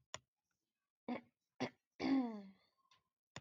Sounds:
Throat clearing